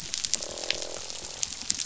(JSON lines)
{"label": "biophony, croak", "recorder": "SoundTrap 500"}